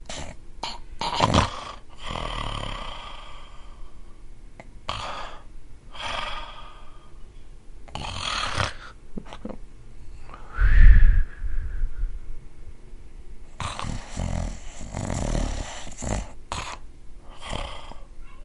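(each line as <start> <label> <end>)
0.0 A man is snoring. 3.8
0.0 Man sleeping. 18.4
0.0 A man inhales deeply, preparing to snore. 1.5
1.6 A man is snoring while breathing out. 3.8
4.9 A man inhales deeply, preparing to snore. 6.0
7.9 A man inhales deeply, preparing to snore. 9.1
9.2 A man makes a strange noise while sleeping. 10.4
10.5 A man is exhaling. 12.1
13.6 A man is snoring while breathing in. 16.9
17.0 A man snores while breathing out. 18.4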